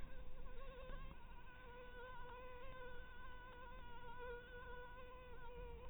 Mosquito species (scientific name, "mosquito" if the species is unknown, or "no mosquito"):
Anopheles maculatus